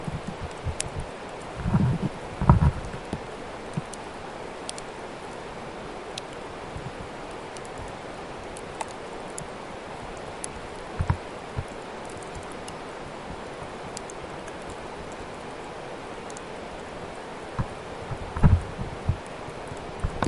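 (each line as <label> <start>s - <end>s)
A river flows in the background. 0.0s - 20.3s
A flicking sound is heard. 0.7s - 0.9s
Shuffling sounds are heard. 1.6s - 2.8s
Rustling is heard. 3.0s - 4.1s
A flicking sound is heard. 4.6s - 4.8s
A flicking sound is heard. 6.1s - 6.3s
A flicking sound occurs. 9.3s - 9.5s
A flicking sound is heard. 10.4s - 11.1s
Whooshing sound. 11.5s - 11.7s
A flicking sound is heard. 13.9s - 14.1s
A flicking sound is heard. 17.5s - 17.7s
Wooden sounds can be heard. 18.3s - 18.6s
Shuffling. 19.0s - 19.1s
A blunt sound is heard. 20.0s - 20.3s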